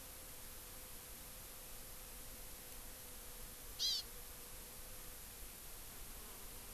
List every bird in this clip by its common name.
Hawaii Amakihi